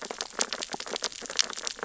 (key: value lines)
label: biophony, sea urchins (Echinidae)
recorder: SoundTrap 600 or HydroMoth